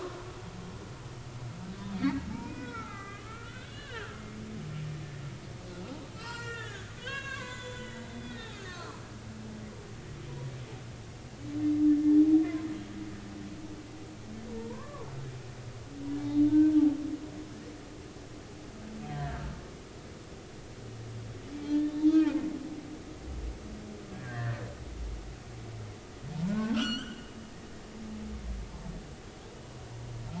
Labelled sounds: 1.9	4.4	humpback whale, 1.1 to 3.6 kHz
6.1	9.0	humpback whale, 0.86 to 7.6 kHz
12.4	12.6	humpback whale, 1.5 to 1.9 kHz
14.5	15.1	humpback whale, 0.86 to 1.2 kHz
16.5	16.7	humpback whale, 1.5 to 1.6 kHz
19.1	19.5	humpback whale, 1.5 to 2.0 kHz
21.6	22.4	humpback whale, 1.7 to 4.5 kHz
24.1	24.6	humpback whale, 1.5 to 2.0 kHz
26.4	27.3	humpback whale, 0.86 to 6.2 kHz

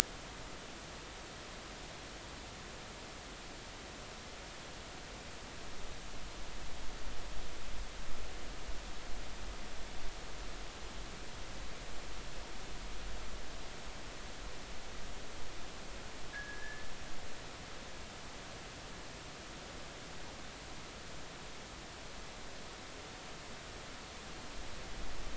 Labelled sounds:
16.3	16.8	fishing gear, 1.6 to 1.9 kHz

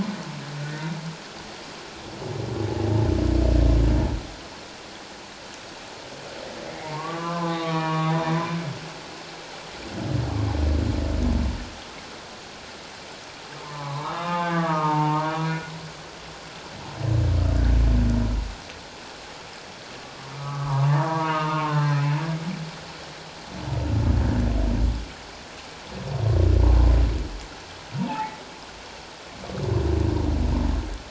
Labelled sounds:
6.8	8.1	humpback whale, 0.78 to 3.8 kHz
13.6	15.5	humpback whale, 0.78 to 3.5 kHz
20.4	21.9	humpback whale, 0.81 to 1.3 kHz
28.0	28.4	humpback whale, 0.78 to 2.0 kHz

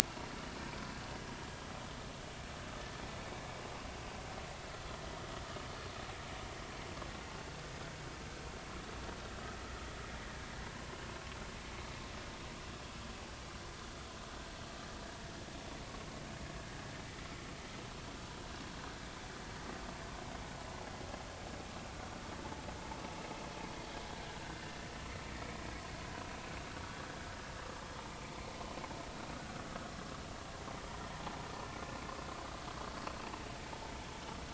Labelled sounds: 10.7	11.0	vessel noise, 0.93 to 1.1 kHz
24.4	24.7	vessel noise, 1.5 to 1.6 kHz

